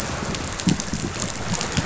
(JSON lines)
{"label": "biophony, chatter", "recorder": "SoundTrap 500"}